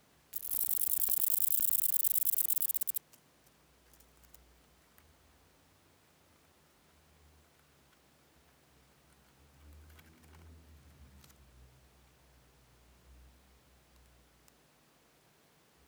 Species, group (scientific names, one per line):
Conocephalus fuscus
Orthoptera